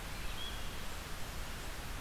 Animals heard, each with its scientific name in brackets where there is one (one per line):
Red-eyed Vireo (Vireo olivaceus)